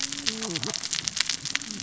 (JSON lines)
{"label": "biophony, cascading saw", "recorder": "SoundTrap 600 or HydroMoth"}